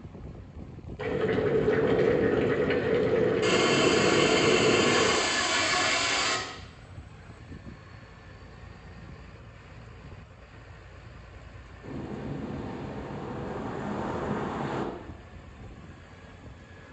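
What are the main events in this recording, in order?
At the start, boiling is heard. Over it, about 3 seconds in, you can hear a chainsaw. Then about 12 seconds in, waves can be heard.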